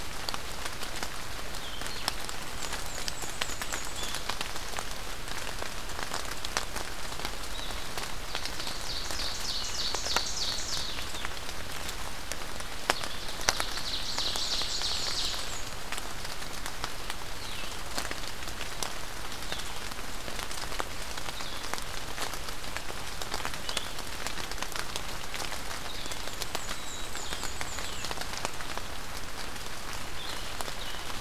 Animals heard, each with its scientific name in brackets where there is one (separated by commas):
Black-and-white Warbler (Mniotilta varia), Black-capped Chickadee (Poecile atricapillus), Ovenbird (Seiurus aurocapilla), Blue-headed Vireo (Vireo solitarius)